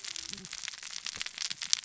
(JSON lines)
{"label": "biophony, cascading saw", "recorder": "SoundTrap 600 or HydroMoth"}